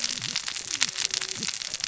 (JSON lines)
{"label": "biophony, cascading saw", "recorder": "SoundTrap 600 or HydroMoth"}